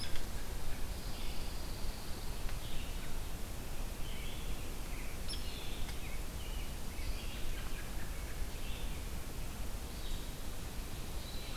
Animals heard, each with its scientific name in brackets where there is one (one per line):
Red-eyed Vireo (Vireo olivaceus)
Hairy Woodpecker (Dryobates villosus)
Pine Warbler (Setophaga pinus)
American Robin (Turdus migratorius)